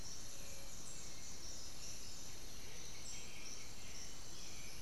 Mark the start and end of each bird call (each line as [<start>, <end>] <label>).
[0.00, 4.81] Black-billed Thrush (Turdus ignobilis)
[2.41, 4.21] White-winged Becard (Pachyramphus polychopterus)
[2.51, 3.01] Amazonian Motmot (Momotus momota)